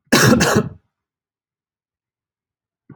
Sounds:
Cough